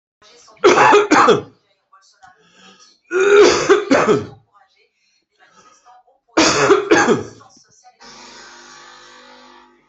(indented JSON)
{
  "expert_labels": [
    {
      "quality": "ok",
      "cough_type": "wet",
      "dyspnea": false,
      "wheezing": false,
      "stridor": false,
      "choking": false,
      "congestion": false,
      "nothing": true,
      "diagnosis": "lower respiratory tract infection",
      "severity": "mild"
    }
  ],
  "age": 50,
  "gender": "male",
  "respiratory_condition": false,
  "fever_muscle_pain": false,
  "status": "healthy"
}